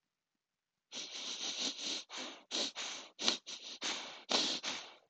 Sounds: Sniff